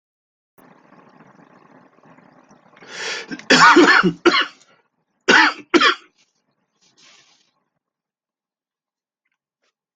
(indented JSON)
{
  "expert_labels": [
    {
      "quality": "good",
      "cough_type": "dry",
      "dyspnea": false,
      "wheezing": false,
      "stridor": false,
      "choking": false,
      "congestion": false,
      "nothing": true,
      "diagnosis": "COVID-19",
      "severity": "mild"
    }
  ],
  "age": 53,
  "gender": "male",
  "respiratory_condition": false,
  "fever_muscle_pain": false,
  "status": "symptomatic"
}